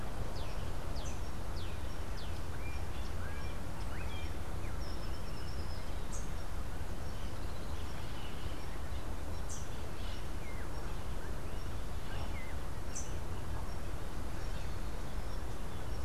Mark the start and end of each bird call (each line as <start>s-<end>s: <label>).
0.0s-4.3s: Melodious Blackbird (Dives dives)